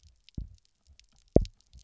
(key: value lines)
label: biophony, double pulse
recorder: SoundTrap 300